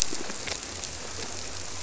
{"label": "biophony, squirrelfish (Holocentrus)", "recorder": "SoundTrap 300"}
{"label": "biophony", "recorder": "SoundTrap 300"}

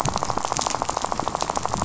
{"label": "biophony, rattle", "recorder": "SoundTrap 500"}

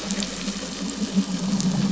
{"label": "anthrophony, boat engine", "recorder": "SoundTrap 500"}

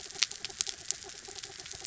{"label": "anthrophony, mechanical", "recorder": "SoundTrap 300"}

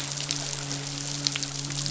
{"label": "biophony, midshipman", "recorder": "SoundTrap 500"}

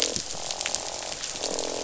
{"label": "biophony, croak", "recorder": "SoundTrap 500"}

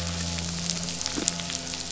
{"label": "anthrophony, boat engine", "recorder": "SoundTrap 500"}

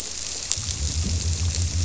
{"label": "biophony", "recorder": "SoundTrap 300"}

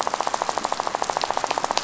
{"label": "biophony, rattle", "recorder": "SoundTrap 500"}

